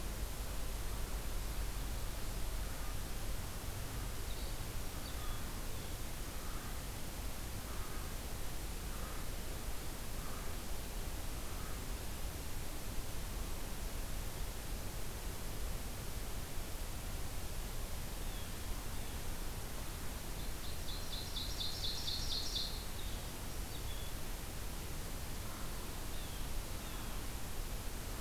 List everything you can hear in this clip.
Song Sparrow, American Crow, Blue Jay, Ovenbird